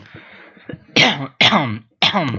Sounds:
Cough